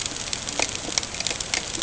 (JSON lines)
{"label": "ambient", "recorder": "HydroMoth"}